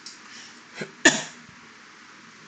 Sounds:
Sneeze